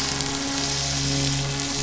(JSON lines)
{"label": "anthrophony, boat engine", "recorder": "SoundTrap 500"}